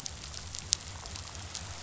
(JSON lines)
{"label": "biophony", "recorder": "SoundTrap 500"}